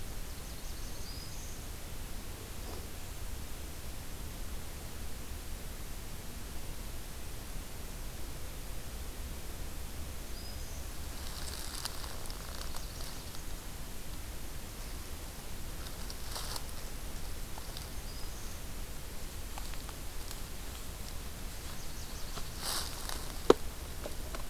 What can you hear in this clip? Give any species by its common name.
Nashville Warbler, Black-throated Green Warbler